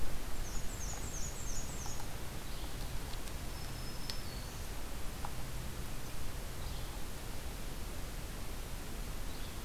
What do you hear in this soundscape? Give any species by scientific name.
Mniotilta varia, Empidonax flaviventris, Setophaga virens